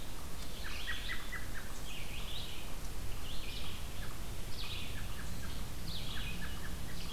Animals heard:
Red-eyed Vireo (Vireo olivaceus), American Robin (Turdus migratorius)

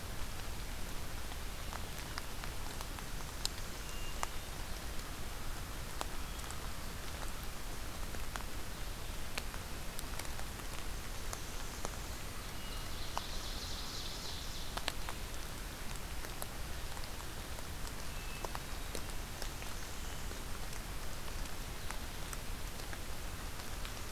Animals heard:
Hermit Thrush (Catharus guttatus), Ovenbird (Seiurus aurocapilla), Blackburnian Warbler (Setophaga fusca)

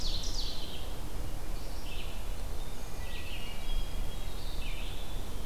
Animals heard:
Red-eyed Vireo (Vireo olivaceus), Hermit Thrush (Catharus guttatus), Ovenbird (Seiurus aurocapilla), Winter Wren (Troglodytes hiemalis)

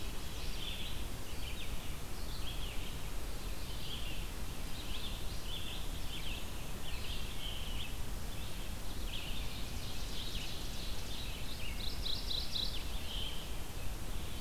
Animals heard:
Veery (Catharus fuscescens), Mourning Warbler (Geothlypis philadelphia), Red-eyed Vireo (Vireo olivaceus), Ovenbird (Seiurus aurocapilla)

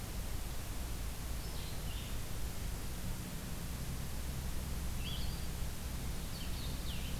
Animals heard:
Blue-headed Vireo (Vireo solitarius)

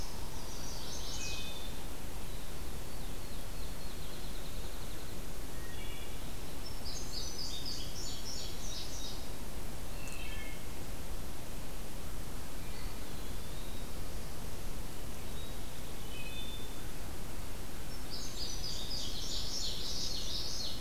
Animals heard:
Field Sparrow (Spizella pusilla), Wood Thrush (Hylocichla mustelina), Indigo Bunting (Passerina cyanea), Common Yellowthroat (Geothlypis trichas), Eastern Wood-Pewee (Contopus virens), Chestnut-sided Warbler (Setophaga pensylvanica)

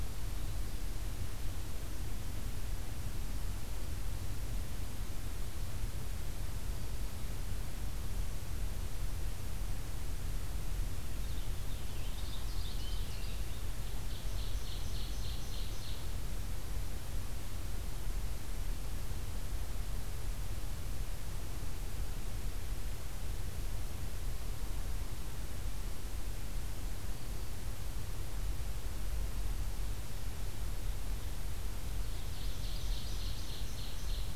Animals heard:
Purple Finch (Haemorhous purpureus), Ovenbird (Seiurus aurocapilla)

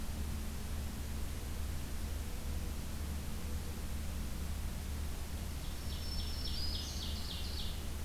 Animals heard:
Ovenbird (Seiurus aurocapilla), Black-throated Green Warbler (Setophaga virens)

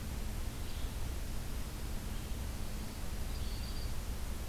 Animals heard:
Black-throated Green Warbler (Setophaga virens), Yellow-bellied Flycatcher (Empidonax flaviventris)

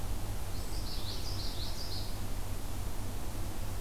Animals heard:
Blue-headed Vireo (Vireo solitarius), Common Yellowthroat (Geothlypis trichas)

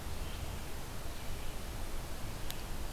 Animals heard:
Red-eyed Vireo (Vireo olivaceus)

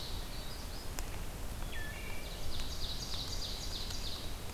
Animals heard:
Magnolia Warbler (Setophaga magnolia), Wood Thrush (Hylocichla mustelina), Ovenbird (Seiurus aurocapilla)

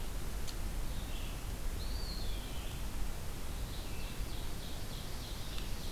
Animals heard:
Eastern Wood-Pewee (Contopus virens), Ovenbird (Seiurus aurocapilla), Red-eyed Vireo (Vireo olivaceus)

